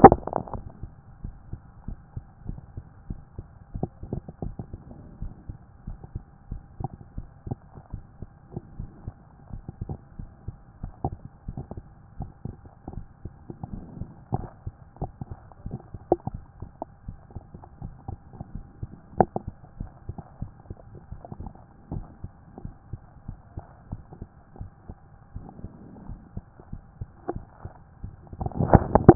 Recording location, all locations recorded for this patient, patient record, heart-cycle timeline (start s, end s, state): mitral valve (MV)
aortic valve (AV)+pulmonary valve (PV)+tricuspid valve (TV)+mitral valve (MV)
#Age: Child
#Sex: Male
#Height: 144.0 cm
#Weight: 44.8 kg
#Pregnancy status: False
#Murmur: Absent
#Murmur locations: nan
#Most audible location: nan
#Systolic murmur timing: nan
#Systolic murmur shape: nan
#Systolic murmur grading: nan
#Systolic murmur pitch: nan
#Systolic murmur quality: nan
#Diastolic murmur timing: nan
#Diastolic murmur shape: nan
#Diastolic murmur grading: nan
#Diastolic murmur pitch: nan
#Diastolic murmur quality: nan
#Outcome: Normal
#Campaign: 2014 screening campaign
0.00	1.22	unannotated
1.22	1.34	S1
1.34	1.50	systole
1.50	1.60	S2
1.60	1.86	diastole
1.86	1.98	S1
1.98	2.14	systole
2.14	2.24	S2
2.24	2.46	diastole
2.46	2.60	S1
2.60	2.76	systole
2.76	2.84	S2
2.84	3.08	diastole
3.08	3.20	S1
3.20	3.36	systole
3.36	3.46	S2
3.46	3.73	diastole
3.73	3.85	S1
3.85	4.03	systole
4.03	4.13	S2
4.13	4.44	diastole
4.44	4.54	S1
4.54	4.72	systole
4.72	4.80	S2
4.80	5.20	diastole
5.20	5.32	S1
5.32	5.48	systole
5.48	5.58	S2
5.58	5.86	diastole
5.86	5.98	S1
5.98	6.14	systole
6.14	6.22	S2
6.22	6.50	diastole
6.50	6.62	S1
6.62	6.80	systole
6.80	6.90	S2
6.90	7.16	diastole
7.16	7.28	S1
7.28	7.46	systole
7.46	7.58	S2
7.58	7.92	diastole
7.92	8.04	S1
8.04	8.20	systole
8.20	8.30	S2
8.30	8.53	diastole
8.53	29.15	unannotated